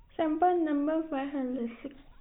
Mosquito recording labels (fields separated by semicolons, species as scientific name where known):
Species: no mosquito; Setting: cup